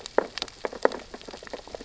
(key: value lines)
label: biophony, sea urchins (Echinidae)
recorder: SoundTrap 600 or HydroMoth